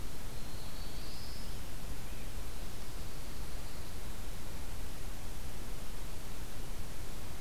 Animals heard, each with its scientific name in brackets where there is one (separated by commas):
Black-throated Blue Warbler (Setophaga caerulescens), Pine Warbler (Setophaga pinus)